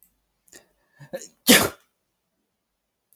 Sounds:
Sneeze